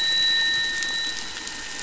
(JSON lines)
{"label": "anthrophony, boat engine", "recorder": "SoundTrap 500"}